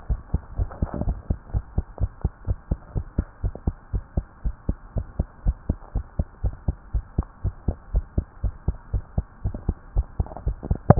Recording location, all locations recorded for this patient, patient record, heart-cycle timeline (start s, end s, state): tricuspid valve (TV)
aortic valve (AV)+pulmonary valve (PV)+tricuspid valve (TV)+mitral valve (MV)
#Age: Child
#Sex: Female
#Height: 120.0 cm
#Weight: 24.8 kg
#Pregnancy status: False
#Murmur: Absent
#Murmur locations: nan
#Most audible location: nan
#Systolic murmur timing: nan
#Systolic murmur shape: nan
#Systolic murmur grading: nan
#Systolic murmur pitch: nan
#Systolic murmur quality: nan
#Diastolic murmur timing: nan
#Diastolic murmur shape: nan
#Diastolic murmur grading: nan
#Diastolic murmur pitch: nan
#Diastolic murmur quality: nan
#Outcome: Normal
#Campaign: 2015 screening campaign
0.00	1.52	unannotated
1.52	1.64	S1
1.64	1.74	systole
1.74	1.84	S2
1.84	2.00	diastole
2.00	2.10	S1
2.10	2.22	systole
2.22	2.32	S2
2.32	2.48	diastole
2.48	2.58	S1
2.58	2.68	systole
2.68	2.78	S2
2.78	2.94	diastole
2.94	3.08	S1
3.08	3.16	systole
3.16	3.26	S2
3.26	3.42	diastole
3.42	3.56	S1
3.56	3.64	systole
3.64	3.76	S2
3.76	3.92	diastole
3.92	4.04	S1
4.04	4.16	systole
4.16	4.26	S2
4.26	4.44	diastole
4.44	4.54	S1
4.54	4.66	systole
4.66	4.78	S2
4.78	4.96	diastole
4.96	5.08	S1
5.08	5.18	systole
5.18	5.28	S2
5.28	5.46	diastole
5.46	5.60	S1
5.60	5.68	systole
5.68	5.78	S2
5.78	5.94	diastole
5.94	6.04	S1
6.04	6.18	systole
6.18	6.28	S2
6.28	6.42	diastole
6.42	6.54	S1
6.54	6.66	systole
6.66	6.76	S2
6.76	6.94	diastole
6.94	7.04	S1
7.04	7.14	systole
7.14	7.28	S2
7.28	7.44	diastole
7.44	7.54	S1
7.54	7.66	systole
7.66	7.76	S2
7.76	7.92	diastole
7.92	8.06	S1
8.06	8.16	systole
8.16	8.26	S2
8.26	8.42	diastole
8.42	8.54	S1
8.54	8.64	systole
8.64	8.76	S2
8.76	8.92	diastole
8.92	9.04	S1
9.04	9.16	systole
9.16	9.26	S2
9.26	9.44	diastole
9.44	9.58	S1
9.58	9.66	systole
9.66	9.78	S2
9.78	9.94	diastole
9.94	10.08	S1
10.08	10.18	systole
10.18	10.28	S2
10.28	10.42	diastole
10.42	10.56	S1
10.56	10.99	unannotated